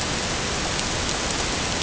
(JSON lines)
{"label": "ambient", "recorder": "HydroMoth"}